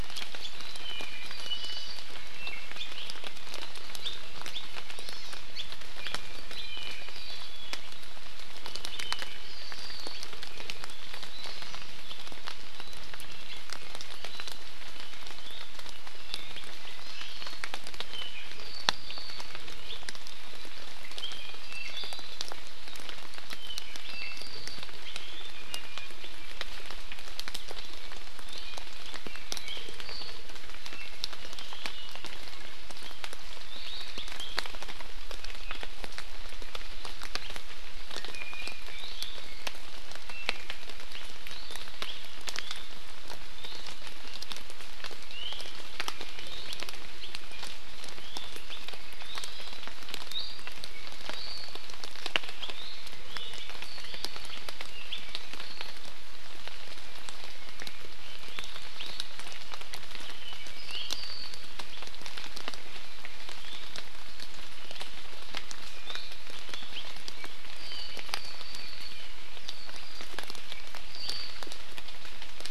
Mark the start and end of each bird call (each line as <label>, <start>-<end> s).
Iiwi (Drepanis coccinea), 1.2-2.0 s
Iiwi (Drepanis coccinea), 2.3-2.9 s
Hawaii Amakihi (Chlorodrepanis virens), 4.9-5.4 s
Iiwi (Drepanis coccinea), 6.6-7.7 s
Hawaii Amakihi (Chlorodrepanis virens), 17.0-17.3 s
Apapane (Himatione sanguinea), 18.1-19.6 s
Apapane (Himatione sanguinea), 21.2-22.4 s
Iiwi (Drepanis coccinea), 25.5-26.1 s
Iiwi (Drepanis coccinea), 38.1-39.0 s
Iiwi (Drepanis coccinea), 45.3-45.6 s
Iiwi (Drepanis coccinea), 49.3-49.8 s
Iiwi (Drepanis coccinea), 50.3-50.6 s
Apapane (Himatione sanguinea), 60.3-61.7 s